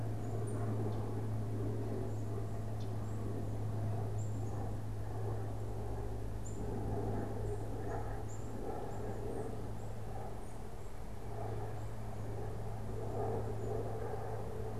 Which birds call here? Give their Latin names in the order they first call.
Geothlypis trichas, Poecile atricapillus, Baeolophus bicolor